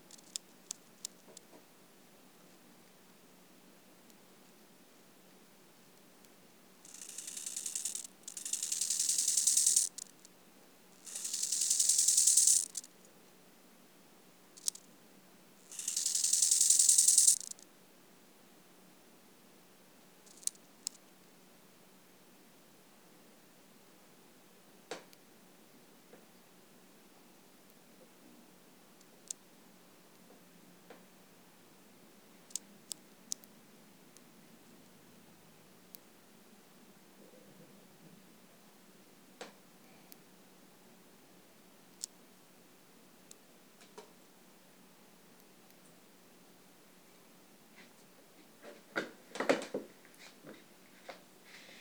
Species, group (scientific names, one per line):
Chorthippus biguttulus
Orthoptera